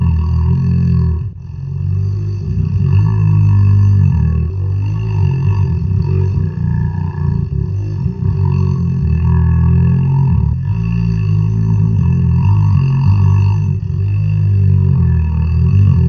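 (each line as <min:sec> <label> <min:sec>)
0:00.0 A long, troll-like snore repeats continuously. 0:16.1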